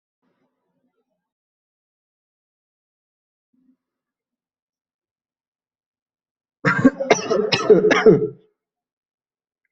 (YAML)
expert_labels:
- quality: ok
  cough_type: dry
  dyspnea: false
  wheezing: false
  stridor: false
  choking: false
  congestion: false
  nothing: true
  diagnosis: upper respiratory tract infection
  severity: mild
age: 25
gender: male
respiratory_condition: false
fever_muscle_pain: false
status: healthy